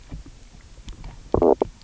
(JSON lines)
{"label": "biophony, knock croak", "recorder": "SoundTrap 300"}